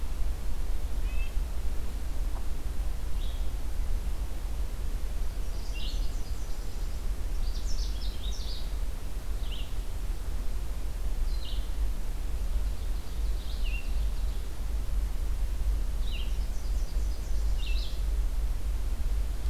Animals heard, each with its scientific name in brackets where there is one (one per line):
Ovenbird (Seiurus aurocapilla)
Red-breasted Nuthatch (Sitta canadensis)
Canada Warbler (Cardellina canadensis)
Nashville Warbler (Leiothlypis ruficapilla)
Red-eyed Vireo (Vireo olivaceus)